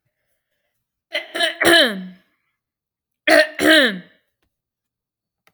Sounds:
Throat clearing